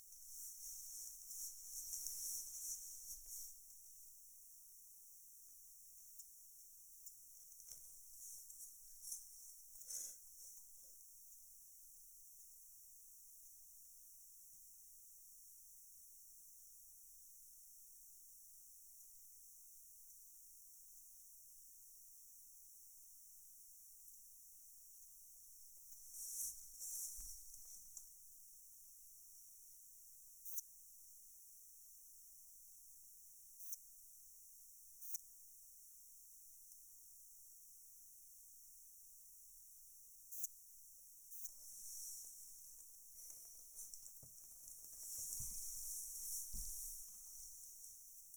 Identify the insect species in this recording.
Poecilimon elegans